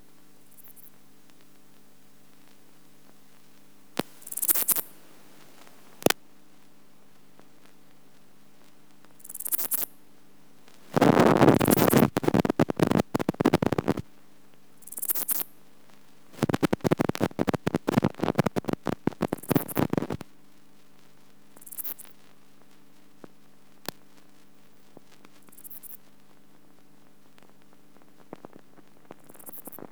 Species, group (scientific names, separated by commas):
Albarracinia zapaterii, Orthoptera